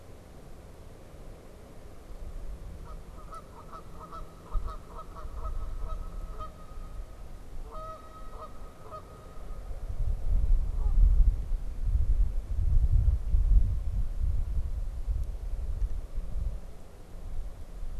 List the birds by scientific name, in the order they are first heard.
Branta canadensis